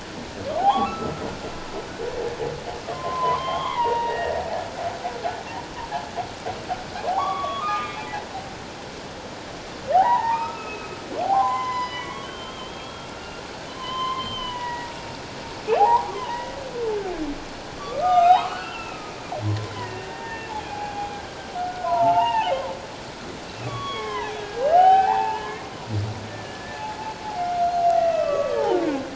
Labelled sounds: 0.6	1.3	humpback whale, 0.78 to 1.4 kHz
2.8	4.4	humpback whale, 0.78 to 3.8 kHz
7.1	8.3	humpback whale, 0.78 to 3.5 kHz
9.9	10.9	humpback whale, 0.78 to 2.7 kHz
11.2	15.2	humpback whale, 0.78 to 5.1 kHz
15.7	16.6	humpback whale, 0.78 to 3.0 kHz
17.8	21.1	humpback whale, 0.78 to 7.6 kHz
21.7	22.5	humpback whale, 0.78 to 2.9 kHz
23.7	26.8	humpback whale, 0.78 to 3.5 kHz
27.4	28.7	humpback whale, 1.1 to 2.8 kHz

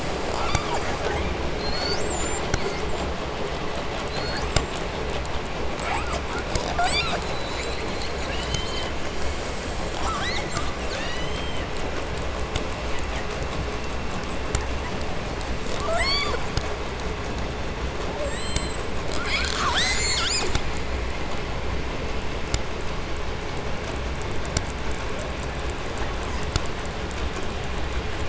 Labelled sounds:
0.3	1.4	killer whale, 0.29 to 8.0 kHz
1.5	3.1	killer whale, southern resident, J pod, call S42, 0.87 to 8.0 kHz
4.0	4.8	killer whale, southern resident, J pod, call S42, 0.80 to 8.0 kHz
5.7	7.3	killer whale, 0.45 to 8.0 kHz
7.9	9.0	killer whale, southern resident, J pod, call S44, 0.87 to 7.1 kHz
9.9	10.7	killer whale, 0.43 to 8.0 kHz
10.8	11.8	killer whale, southern resident, J pod, call S44, 1.1 to 8.0 kHz
12.8	13.3	killer whale, 1.4 to 8.0 kHz
14.0	15.0	killer whale, 7.0 to 8.0 kHz
15.5	16.8	killer whale, southern resident, J pod, call S44, 0.34 to 8.0 kHz
18.0	19.1	killer whale, southern resident, J pod, call S44, 0.44 to 8.0 kHz
19.1	20.6	killer whale, 0.23 to 8.0 kHz
25.8	26.5	killer whale, 0.59 to 8.0 kHz

